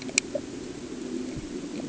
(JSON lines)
{"label": "anthrophony, boat engine", "recorder": "HydroMoth"}